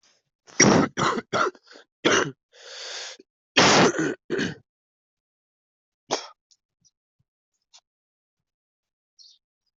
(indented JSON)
{
  "expert_labels": [
    {
      "quality": "ok",
      "cough_type": "wet",
      "dyspnea": false,
      "wheezing": false,
      "stridor": false,
      "choking": false,
      "congestion": false,
      "nothing": true,
      "diagnosis": "lower respiratory tract infection",
      "severity": "mild"
    }
  ]
}